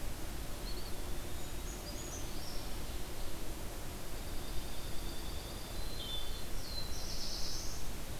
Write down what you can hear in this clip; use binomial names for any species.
Contopus virens, Certhia americana, Junco hyemalis, Hylocichla mustelina, Setophaga caerulescens